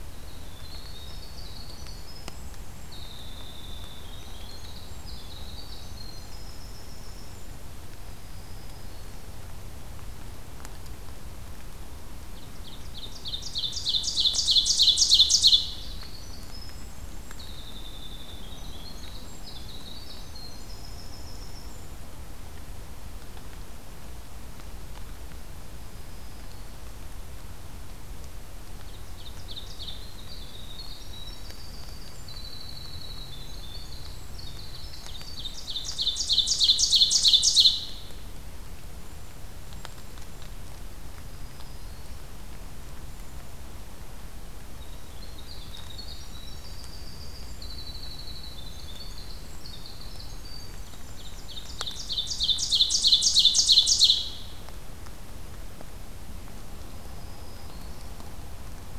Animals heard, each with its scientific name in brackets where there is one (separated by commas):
Cedar Waxwing (Bombycilla cedrorum), Black-throated Green Warbler (Setophaga virens), Winter Wren (Troglodytes hiemalis), Ovenbird (Seiurus aurocapilla)